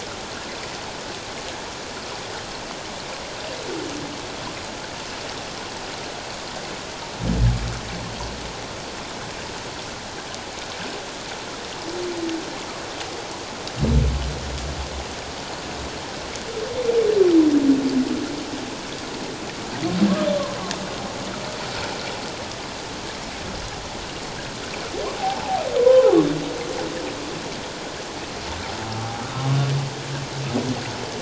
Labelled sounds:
25.2	26.1	humpback whale, 0.78 to 1.1 kHz

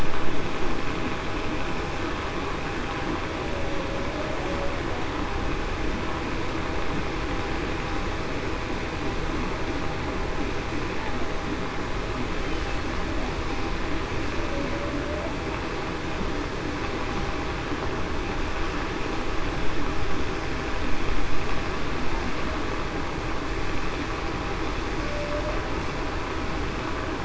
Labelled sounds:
25.0	25.4	humpback whale, 0.54 to 0.61 kHz

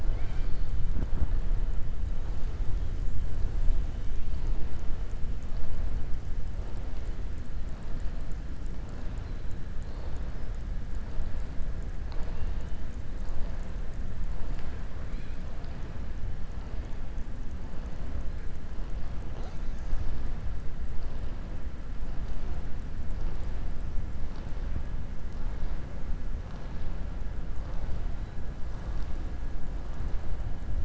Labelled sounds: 0.0	0.7	killer whale, southern resident, 0.66 to 5.7 kHz

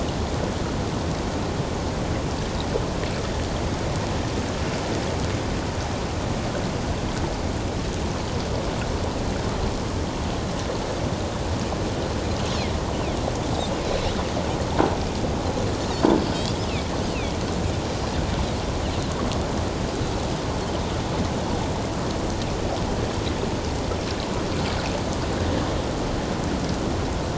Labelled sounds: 17.1	17.4	Pacific white-sided dolphin, 2.2 to 3.1 kHz

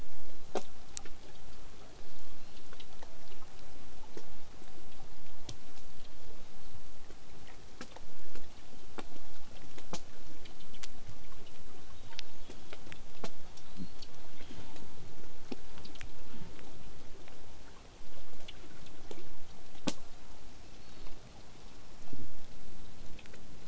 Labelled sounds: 2.0	2.6	killer whale, southern resident, 0.81 to 6.0 kHz
12.0	12.8	killer whale, southern resident, 0.70 to 6.9 kHz
13.5	14.0	killer whale, southern resident, whistle, 3.2 to 4.6 kHz
14.3	14.8	killer whale, southern resident, 1.4 to 7.3 kHz
20.6	21.2	killer whale, southern resident, 2.4 to 4.5 kHz

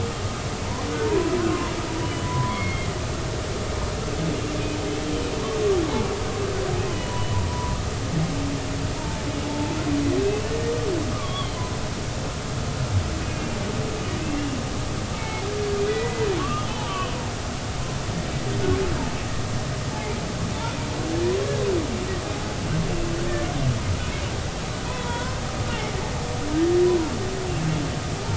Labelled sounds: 0.9	2.9	humpback whale, 0.90 to 3.0 kHz
7.5	8.3	humpback whale, 0.93 to 1.1 kHz
9.0	9.2	humpback whale, 0.83 to 0.99 kHz
9.5	10.5	humpback whale, 0.83 to 2.8 kHz
11.1	11.6	humpback whale, 1.0 to 3.5 kHz
13.2	13.6	humpback whale, 2.4 to 2.8 kHz
15.2	15.5	humpback whale, 0.80 to 2.3 kHz
15.9	17.1	humpback whale, 1.0 to 3.1 kHz
17.9	18.1	humpback whale, 1.0 to 1.2 kHz
24.9	25.3	humpback whale, 1.4 to 3.6 kHz
25.9	26.3	humpback whale, 0.90 to 1.1 kHz

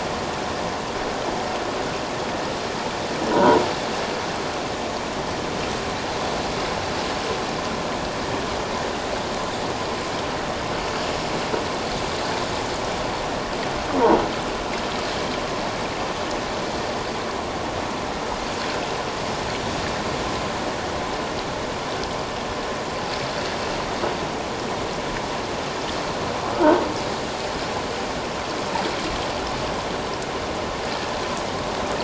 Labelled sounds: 3.3	3.6	croaking sound likely from a nearby submerged object, 0.88 to 1.1 kHz
26.6	26.8	croaking sound likely from a nearby submerged object, 1.4 to 1.6 kHz

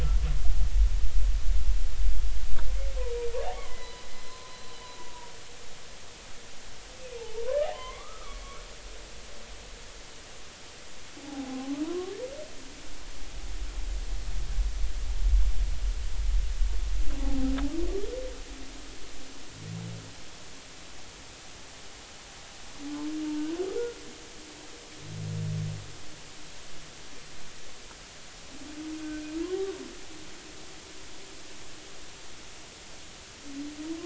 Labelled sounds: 3.5	4.7	humpback whale, 0.96 to 4.2 kHz
5.0	5.3	humpback whale, 0.90 to 1.0 kHz
7.2	8.6	humpback whale, 0.80 to 2.3 kHz
11.2	12.1	humpback whale, 0.80 to 1.2 kHz
17.2	17.5	humpback whale, 0.80 to 0.93 kHz
29.4	29.8	humpback whale, 0.93 to 1.2 kHz

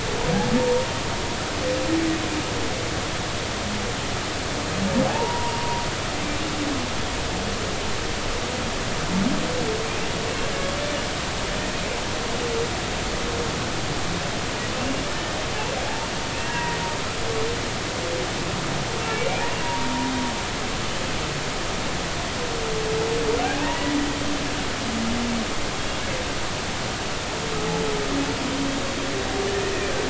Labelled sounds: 0.6	0.9	humpback whale, 0.90 to 0.96 kHz
5.1	5.8	humpback whale, 0.80 to 1.0 kHz
16.4	16.8	humpback whale, 0.90 to 2.0 kHz
19.0	19.2	humpback whale, 2.7 to 2.8 kHz
19.6	19.9	humpback whale, 0.90 to 1.0 kHz
23.6	23.8	humpback whale, 0.80 to 1.0 kHz

